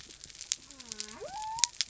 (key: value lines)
label: biophony
recorder: SoundTrap 300